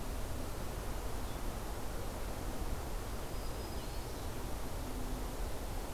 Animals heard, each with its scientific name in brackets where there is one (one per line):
Black-throated Green Warbler (Setophaga virens)
Blue-headed Vireo (Vireo solitarius)